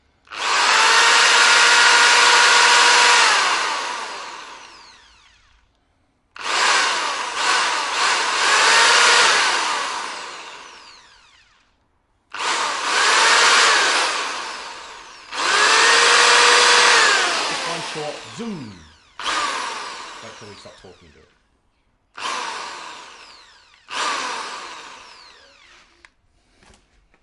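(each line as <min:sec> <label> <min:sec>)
0:00.1 A constant mechanical drilling sound. 0:04.7
0:06.2 A drilling sound with intermittent pressure causing the pitch and volume to rise and fall repeatedly. 0:11.1
0:12.3 A drilling sound with intermittent pressure causing the pitch and volume to rise and fall repeatedly. 0:19.2
0:19.1 A brief, steady mechanical drilling sound. 0:21.0
0:22.2 A brief mechanical drilling sound. 0:26.3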